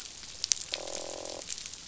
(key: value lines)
label: biophony, croak
recorder: SoundTrap 500